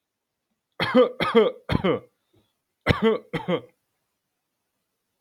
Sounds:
Cough